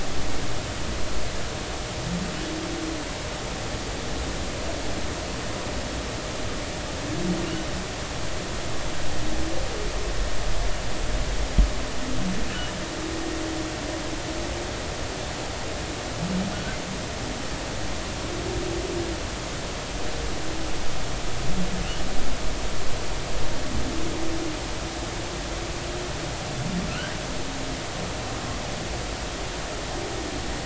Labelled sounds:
26.9	27.2	humpback whale, 1.2 to 1.7 kHz

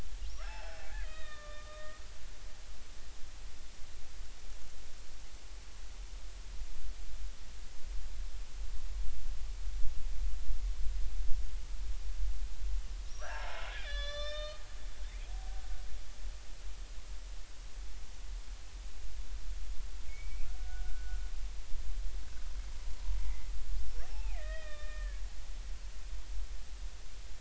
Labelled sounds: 0.3	2.0	killer whale, Bigg's (transient), 0.80 to 5.9 kHz
13.1	14.6	killer whale, Bigg's (transient), 0.80 to 6.1 kHz
20.1	21.2	killer whale, Bigg's (transient), 1.4 to 2.6 kHz
23.2	25.2	killer whale, Bigg's (transient), 0.80 to 3.8 kHz

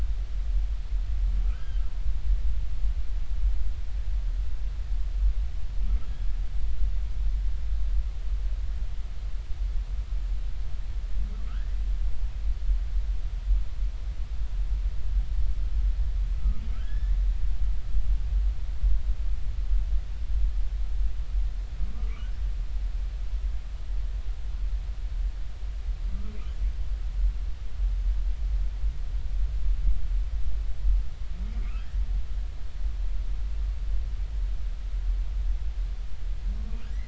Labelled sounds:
2.5	2.8	humpback whale, 1.2 to 1.7 kHz
11.5	11.8	humpback whale, 1.2 to 2.1 kHz
16.4	17.2	humpback whale, 1.2 to 2.1 kHz

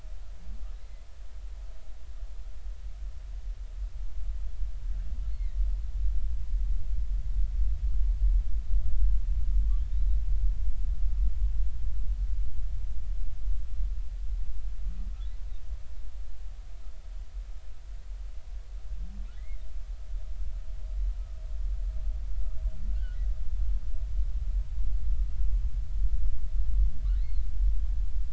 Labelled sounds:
5.3	5.6	humpback whale, 1.8 to 2.3 kHz
19.4	19.6	humpback whale, 1.8 to 2.2 kHz
27.2	27.4	humpback whale, 1.9 to 4.4 kHz

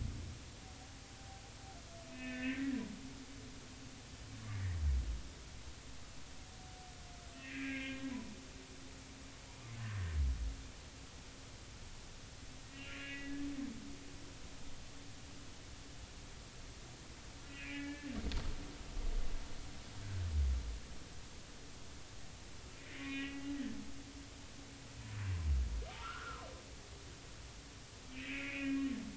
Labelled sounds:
2.1	2.8	humpback whale, 1.5 to 2.9 kHz
7.3	8.4	humpback whale, 0.86 to 2.8 kHz
9.8	10.2	humpback whale, 1.5 to 1.9 kHz
12.7	13.5	humpback whale, 1.6 to 2.9 kHz
17.5	18.1	humpback whale, 1.6 to 2.9 kHz
22.8	23.5	humpback whale, 1.8 to 3.1 kHz
25.9	26.4	humpback whale, 0.99 to 1.6 kHz
28.1	28.9	humpback whale, 1.8 to 2.7 kHz

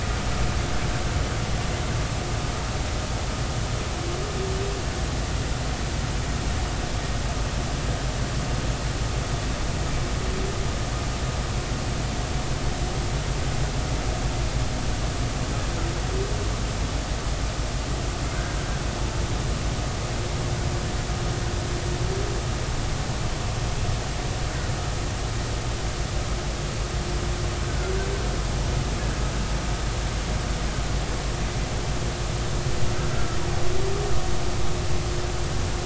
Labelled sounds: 27.7	27.9	killer whale, Bigg's (transient), 1.3 to 1.6 kHz

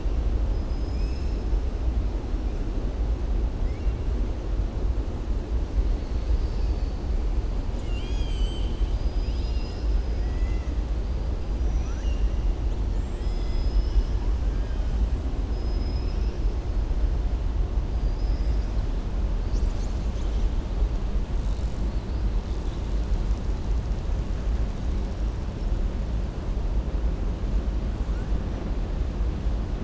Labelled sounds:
0.9	1.3	killer whale, southern resident, 2.3 to 2.8 kHz
6.0	6.9	killer whale, southern resident, 3.7 to 5.3 kHz
11.6	12.3	killer whale, southern resident, 1.2 to 7.1 kHz
14.5	14.9	killer whale, southern resident, 1.5 to 3.2 kHz
15.5	16.4	killer whale, southern resident, 5.0 to 5.8 kHz
17.9	18.7	killer whale, southern resident, 4.7 to 5.8 kHz

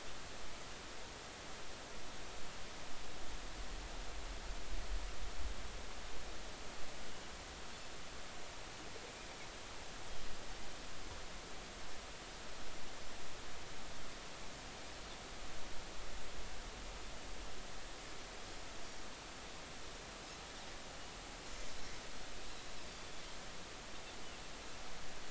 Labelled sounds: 22.9	23.2	Pacific white-sided dolphin, 3.4 to 3.6 kHz

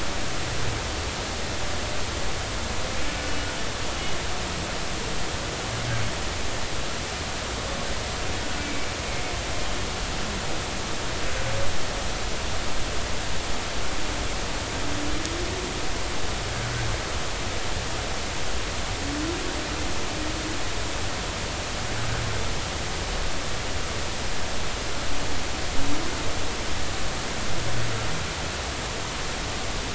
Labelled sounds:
8.6	8.9	humpback whale, 2.2 to 2.4 kHz

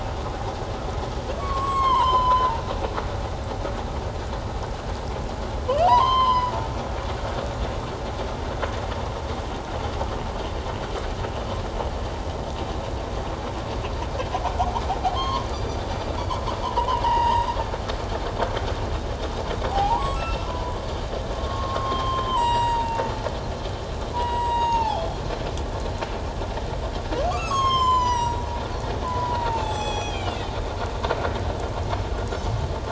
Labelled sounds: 1.4	2.6	humpback whale, 0.84 to 7.8 kHz
5.8	6.5	humpback whale, 0.81 to 5.1 kHz
15.2	15.8	humpback whale, 0.94 to 4.9 kHz
16.6	17.5	humpback whale, 0.81 to 5.1 kHz
19.7	20.8	humpback whale, 0.78 to 8.0 kHz
21.4	23.0	humpback whale, 0.81 to 7.8 kHz
24.1	25.2	humpback whale, 0.78 to 7.7 kHz
27.3	28.4	humpback whale, 0.88 to 7.9 kHz
29.0	30.4	humpback whale, 0.78 to 7.8 kHz
32.3	32.5	humpback whale, 5.1 to 5.6 kHz

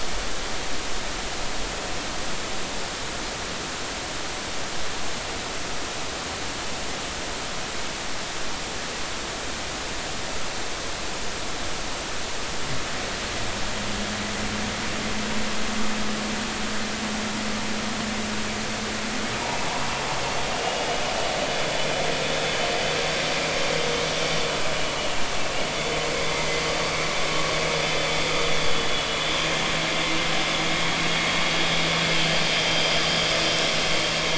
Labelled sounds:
20.6	20.9	vessel noise, 2.8 to 2.9 kHz
28.7	29.0	vessel noise, 2.9 to 3.0 kHz
32.2	32.9	vessel noise, 3.1 to 3.2 kHz

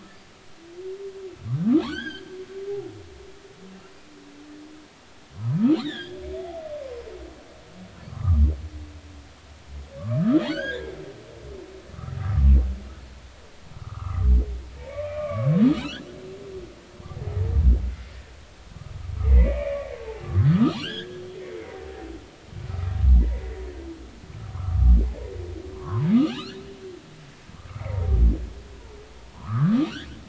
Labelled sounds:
1.8	2.3	humpback whale, 1.4 to 5.0 kHz
5.7	6.2	humpback whale, 1.4 to 4.3 kHz
6.8	7.1	humpback whale, 0.96 to 1.1 kHz
8.1	8.4	humpback whale, 0.96 to 1.3 kHz
10.0	10.8	humpback whale, 1.0 to 5.0 kHz
11.5	12.5	humpback whale, 1.0 to 2.0 kHz
13.7	14.3	humpback whale, 0.96 to 1.4 kHz
14.8	15.5	humpback whale, 1.0 to 2.5 kHz
15.8	16.0	humpback whale, 2.2 to 3.6 kHz
19.2	21.8	humpback whale, 1.2 to 5.2 kHz
22.7	23.0	humpback whale, 1.2 to 1.4 kHz
23.3	23.6	humpback whale, 1.9 to 2.1 kHz
24.5	25.0	humpback whale, 0.99 to 1.4 kHz
25.7	26.6	humpback whale, 0.86 to 4.5 kHz
27.7	28.0	humpback whale, 1.9 to 2.4 kHz
29.3	30.1	humpback whale, 0.90 to 3.7 kHz

